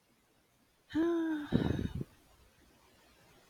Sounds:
Sigh